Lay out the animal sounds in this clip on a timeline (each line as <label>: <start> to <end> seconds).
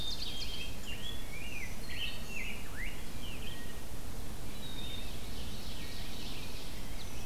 Ovenbird (Seiurus aurocapilla): 0.0 to 0.7 seconds
Black-capped Chickadee (Poecile atricapillus): 0.0 to 0.8 seconds
Rose-breasted Grosbeak (Pheucticus ludovicianus): 0.0 to 3.7 seconds
Black-capped Chickadee (Poecile atricapillus): 4.4 to 5.2 seconds
Ovenbird (Seiurus aurocapilla): 4.8 to 6.8 seconds